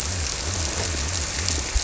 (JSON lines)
{"label": "biophony", "recorder": "SoundTrap 300"}